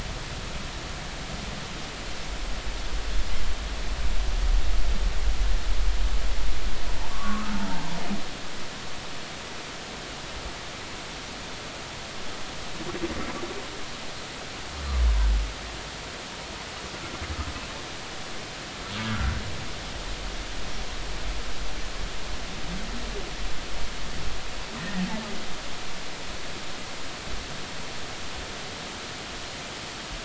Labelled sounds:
7.0	7.5	humpback whale, 0.83 to 1.3 kHz
24.8	25.0	humpback whale, 1.8 to 2.0 kHz

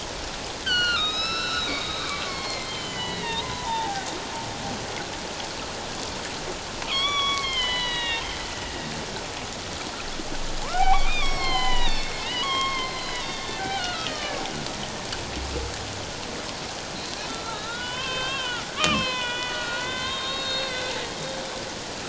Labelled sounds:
0.6	4.1	humpback whale, 0.78 to 6.2 kHz
6.9	8.3	humpback whale, 0.91 to 5.8 kHz
10.6	14.4	humpback whale, 0.78 to 8.0 kHz
17.3	20.9	humpback whale, 0.88 to 5.3 kHz

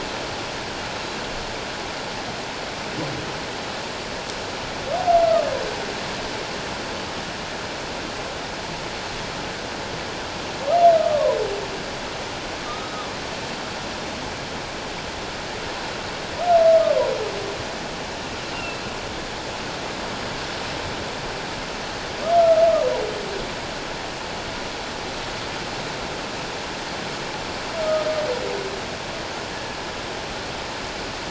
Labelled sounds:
10.9	11.4	humpback whale, 0.94 to 1.3 kHz
12.7	13.1	humpback whale, 1.1 to 1.3 kHz
18.5	18.8	humpback whale, 2.6 to 2.8 kHz
27.8	28.1	humpback whale, 1.2 to 1.4 kHz
29.5	29.8	humpback whale, 1.6 to 1.8 kHz

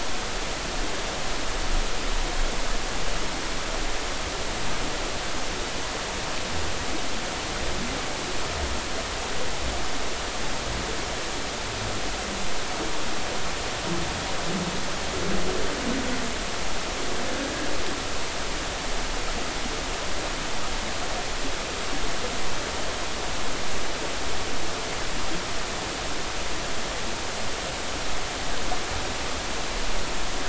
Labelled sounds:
17.4	17.7	humpback whale, 1.6 to 1.7 kHz

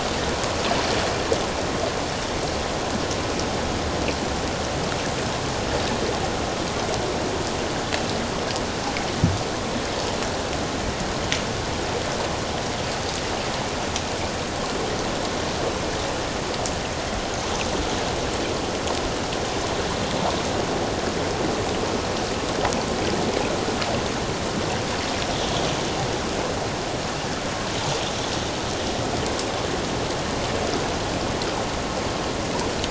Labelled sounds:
25.4	25.7	water noise, 3.2 to 3.4 kHz

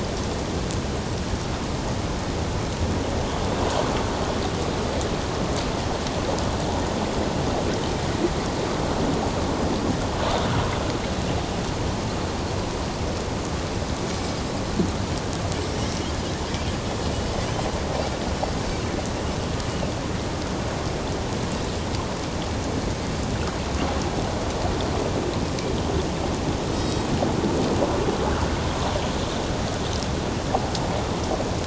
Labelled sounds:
26.7	27.1	Pacific white-sided dolphin, 3.8 to 7.7 kHz

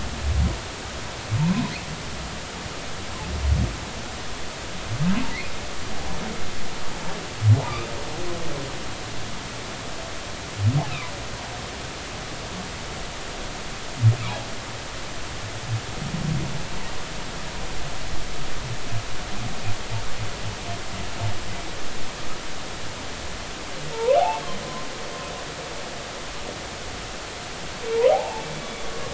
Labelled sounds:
10.9	11.1	humpback whale, 2.0 to 2.8 kHz
23.9	24.4	humpback whale, 0.80 to 1.2 kHz
28.1	28.5	humpback whale, 0.80 to 0.99 kHz

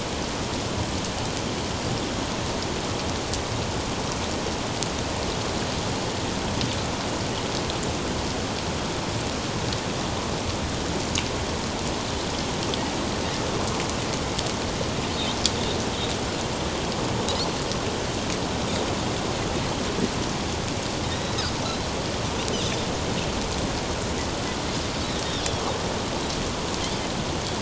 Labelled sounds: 21.0	21.4	Pacific white-sided dolphin, 3.6 to 4.0 kHz
25.2	25.7	Pacific white-sided dolphin, 3.2 to 3.8 kHz

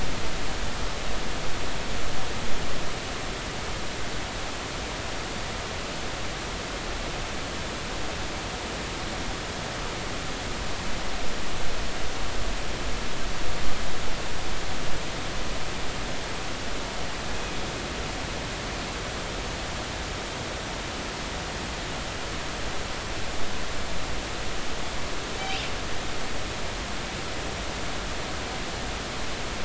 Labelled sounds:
25.4	25.6	killer whale, northern resident, 2.2 to 3.0 kHz

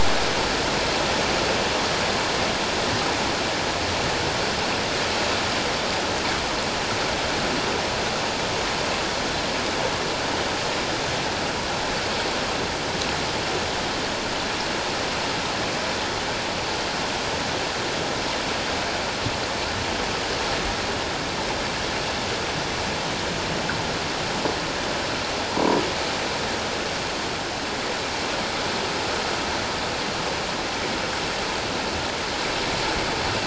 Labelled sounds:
25.6	25.8	croaking sound likely from a nearby submerged object, 0.88 to 1.1 kHz

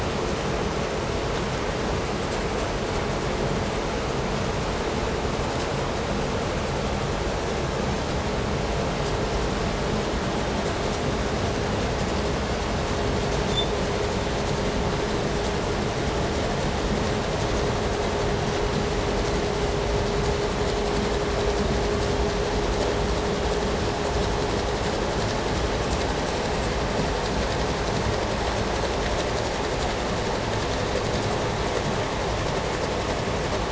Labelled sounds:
13.3	13.8	vessel noise, 3.2 to 8.0 kHz

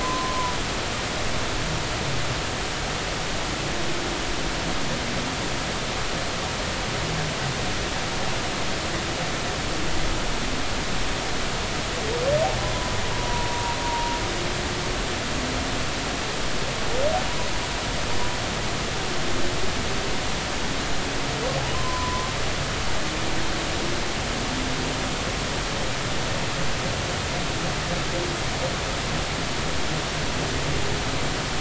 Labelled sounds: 0.0	0.5	humpback whale, 0.93 to 1.1 kHz
13.8	14.8	humpback whale, 0.90 to 0.99 kHz
21.7	22.3	humpback whale, 0.96 to 1.2 kHz

